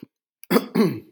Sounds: Cough